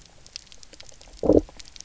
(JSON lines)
{"label": "biophony, low growl", "recorder": "SoundTrap 300"}